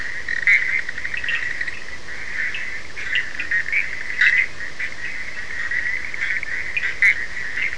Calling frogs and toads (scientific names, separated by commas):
Boana bischoffi, Sphaenorhynchus surdus